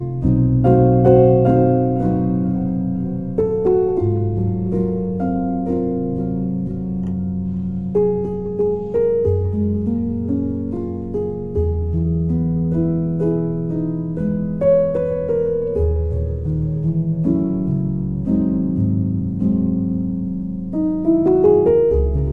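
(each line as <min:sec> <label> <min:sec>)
0:00.0 A slow, quiet jazz piano plays with varying pitches. 0:22.3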